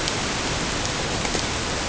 {"label": "ambient", "recorder": "HydroMoth"}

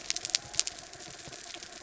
{"label": "anthrophony, mechanical", "recorder": "SoundTrap 300"}
{"label": "biophony", "recorder": "SoundTrap 300"}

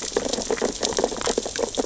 {"label": "biophony, sea urchins (Echinidae)", "recorder": "SoundTrap 600 or HydroMoth"}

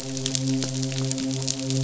{"label": "biophony, midshipman", "recorder": "SoundTrap 500"}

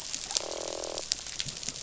{"label": "biophony, croak", "recorder": "SoundTrap 500"}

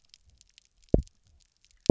{"label": "biophony, double pulse", "recorder": "SoundTrap 300"}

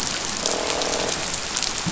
{"label": "biophony, croak", "recorder": "SoundTrap 500"}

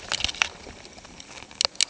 {"label": "ambient", "recorder": "HydroMoth"}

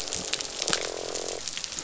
{"label": "biophony, croak", "recorder": "SoundTrap 500"}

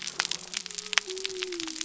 {"label": "biophony", "recorder": "SoundTrap 300"}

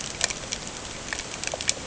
{"label": "ambient", "recorder": "HydroMoth"}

